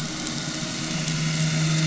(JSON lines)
{"label": "anthrophony, boat engine", "recorder": "SoundTrap 500"}